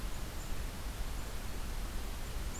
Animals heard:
forest ambience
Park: Marsh-Billings-Rockefeller National Historical Park